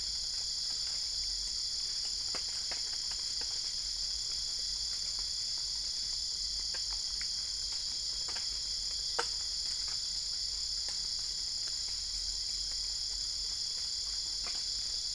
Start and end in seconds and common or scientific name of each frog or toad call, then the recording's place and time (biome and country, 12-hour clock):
none
Cerrado, Brazil, 2:30am